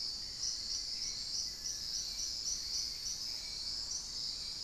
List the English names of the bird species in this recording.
unidentified bird, Hauxwell's Thrush, Mealy Parrot